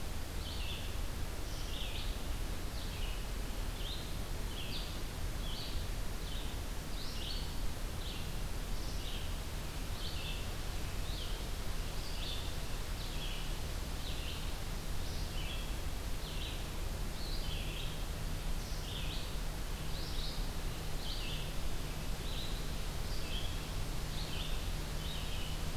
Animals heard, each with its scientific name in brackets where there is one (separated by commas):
Red-eyed Vireo (Vireo olivaceus)